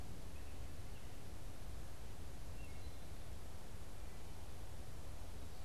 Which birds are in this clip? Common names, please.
unidentified bird, Wood Thrush